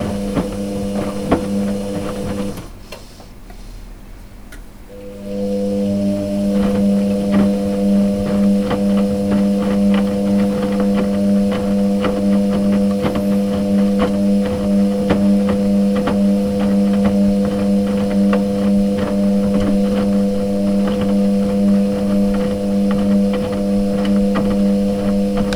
Is the noise level constant?
no